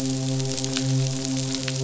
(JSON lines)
{"label": "biophony, midshipman", "recorder": "SoundTrap 500"}